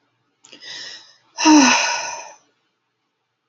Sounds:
Sigh